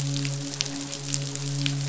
{"label": "biophony, midshipman", "recorder": "SoundTrap 500"}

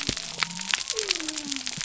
{"label": "biophony", "recorder": "SoundTrap 300"}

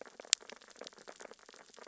{"label": "biophony, sea urchins (Echinidae)", "recorder": "SoundTrap 600 or HydroMoth"}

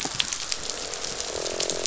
{"label": "biophony, croak", "recorder": "SoundTrap 500"}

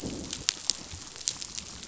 {"label": "biophony", "recorder": "SoundTrap 500"}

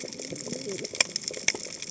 {"label": "biophony, cascading saw", "recorder": "HydroMoth"}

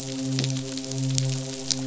{"label": "biophony, midshipman", "recorder": "SoundTrap 500"}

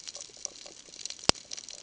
{"label": "ambient", "recorder": "HydroMoth"}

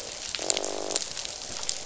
{"label": "biophony, croak", "recorder": "SoundTrap 500"}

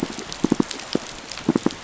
{"label": "biophony, pulse", "recorder": "SoundTrap 500"}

